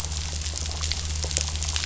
{"label": "anthrophony, boat engine", "recorder": "SoundTrap 500"}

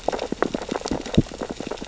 {"label": "biophony, sea urchins (Echinidae)", "recorder": "SoundTrap 600 or HydroMoth"}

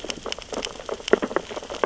{"label": "biophony, sea urchins (Echinidae)", "recorder": "SoundTrap 600 or HydroMoth"}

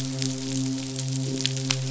{"label": "biophony, midshipman", "recorder": "SoundTrap 500"}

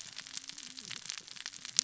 {"label": "biophony, cascading saw", "recorder": "SoundTrap 600 or HydroMoth"}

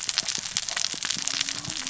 {"label": "biophony, cascading saw", "recorder": "SoundTrap 600 or HydroMoth"}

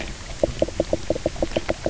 {"label": "biophony, knock croak", "recorder": "SoundTrap 300"}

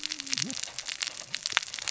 {"label": "biophony, cascading saw", "recorder": "SoundTrap 600 or HydroMoth"}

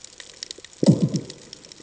{"label": "anthrophony, bomb", "recorder": "HydroMoth"}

